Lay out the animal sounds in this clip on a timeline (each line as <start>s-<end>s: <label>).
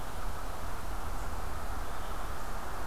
1.8s-2.9s: Red-eyed Vireo (Vireo olivaceus)